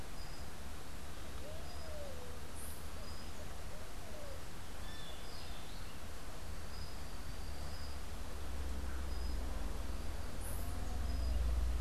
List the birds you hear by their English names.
Red-billed Pigeon, Great Kiskadee, White-eared Ground-Sparrow